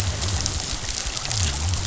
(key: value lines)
label: biophony
recorder: SoundTrap 500